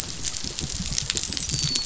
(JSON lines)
{"label": "biophony, dolphin", "recorder": "SoundTrap 500"}